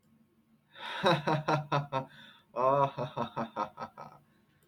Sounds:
Laughter